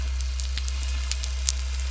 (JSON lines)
{"label": "anthrophony, boat engine", "recorder": "SoundTrap 300"}